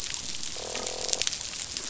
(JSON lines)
{"label": "biophony, croak", "recorder": "SoundTrap 500"}